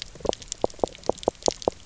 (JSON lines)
{"label": "biophony, knock croak", "recorder": "SoundTrap 300"}